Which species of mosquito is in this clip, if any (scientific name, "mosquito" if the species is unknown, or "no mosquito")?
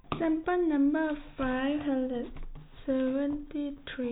no mosquito